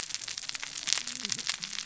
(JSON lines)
{"label": "biophony, cascading saw", "recorder": "SoundTrap 600 or HydroMoth"}